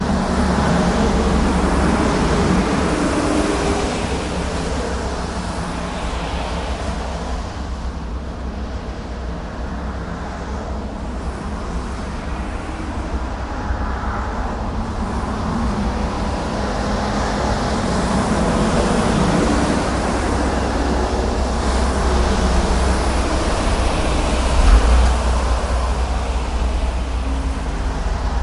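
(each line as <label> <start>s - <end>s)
The ambient hum of a busy bus stop with passing cars creating a blend of rolling tires, engine roars, and distant city noise. 0.0s - 28.4s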